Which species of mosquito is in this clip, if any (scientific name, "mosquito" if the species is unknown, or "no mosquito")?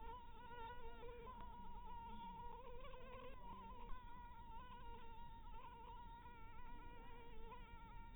Anopheles maculatus